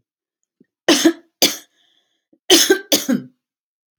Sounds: Cough